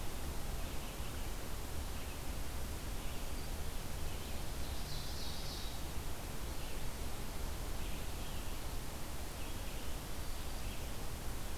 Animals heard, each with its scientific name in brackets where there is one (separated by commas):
Ovenbird (Seiurus aurocapilla), Red-eyed Vireo (Vireo olivaceus)